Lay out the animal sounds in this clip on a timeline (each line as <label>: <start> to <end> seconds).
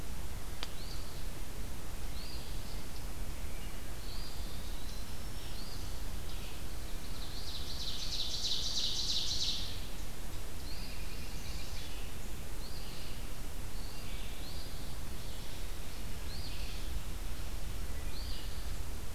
Eastern Phoebe (Sayornis phoebe): 0.7 to 1.4 seconds
Eastern Phoebe (Sayornis phoebe): 2.0 to 2.7 seconds
Wood Thrush (Hylocichla mustelina): 3.4 to 3.9 seconds
Eastern Wood-Pewee (Contopus virens): 3.9 to 5.1 seconds
Black-throated Green Warbler (Setophaga virens): 4.8 to 6.0 seconds
Eastern Phoebe (Sayornis phoebe): 5.4 to 6.2 seconds
Ovenbird (Seiurus aurocapilla): 6.7 to 9.9 seconds
Eastern Phoebe (Sayornis phoebe): 10.4 to 11.3 seconds
American Robin (Turdus migratorius): 10.6 to 11.8 seconds
Chestnut-sided Warbler (Setophaga pensylvanica): 10.9 to 12.0 seconds
Eastern Phoebe (Sayornis phoebe): 12.6 to 13.3 seconds
Eastern Wood-Pewee (Contopus virens): 13.7 to 15.0 seconds
Eastern Phoebe (Sayornis phoebe): 14.3 to 15.1 seconds
Eastern Phoebe (Sayornis phoebe): 16.1 to 16.9 seconds
Eastern Phoebe (Sayornis phoebe): 18.0 to 18.7 seconds